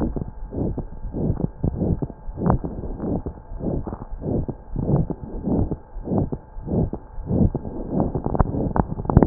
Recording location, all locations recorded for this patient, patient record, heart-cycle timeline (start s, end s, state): pulmonary valve (PV)
aortic valve (AV)+pulmonary valve (PV)+tricuspid valve (TV)+mitral valve (MV)
#Age: Child
#Sex: Male
#Height: 111.0 cm
#Weight: 18.5 kg
#Pregnancy status: False
#Murmur: Present
#Murmur locations: aortic valve (AV)+mitral valve (MV)+pulmonary valve (PV)+tricuspid valve (TV)
#Most audible location: pulmonary valve (PV)
#Systolic murmur timing: Mid-systolic
#Systolic murmur shape: Diamond
#Systolic murmur grading: III/VI or higher
#Systolic murmur pitch: High
#Systolic murmur quality: Harsh
#Diastolic murmur timing: nan
#Diastolic murmur shape: nan
#Diastolic murmur grading: nan
#Diastolic murmur pitch: nan
#Diastolic murmur quality: nan
#Outcome: Abnormal
#Campaign: 2015 screening campaign
0.00	2.81	unannotated
2.81	2.92	S1
2.92	3.22	systole
3.22	3.32	S2
3.32	3.47	diastole
3.47	3.59	S1
3.59	3.81	systole
3.81	3.96	S2
3.96	4.08	diastole
4.08	4.18	S1
4.18	4.45	systole
4.45	4.54	S2
4.54	4.70	diastole
4.70	4.81	S1
4.81	5.06	systole
5.06	5.16	S2
5.16	5.29	diastole
5.29	5.42	S1
5.42	5.67	systole
5.67	5.78	S2
5.78	5.93	diastole
5.93	6.05	S1
6.05	6.28	systole
6.28	6.40	S2
6.40	6.52	diastole
6.52	6.63	S1
6.63	6.90	systole
6.90	7.01	S2
7.01	7.14	diastole
7.14	7.27	S1
7.27	9.26	unannotated